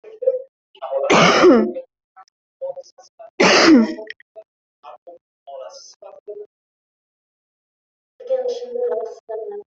{"expert_labels": [{"quality": "ok", "cough_type": "unknown", "dyspnea": false, "wheezing": false, "stridor": false, "choking": false, "congestion": false, "nothing": true, "diagnosis": "healthy cough", "severity": "pseudocough/healthy cough"}], "age": 22, "gender": "female", "respiratory_condition": true, "fever_muscle_pain": true, "status": "COVID-19"}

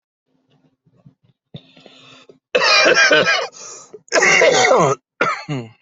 {"expert_labels": [{"quality": "good", "cough_type": "dry", "dyspnea": false, "wheezing": false, "stridor": false, "choking": false, "congestion": false, "nothing": true, "diagnosis": "upper respiratory tract infection", "severity": "mild"}], "age": 29, "gender": "male", "respiratory_condition": true, "fever_muscle_pain": true, "status": "symptomatic"}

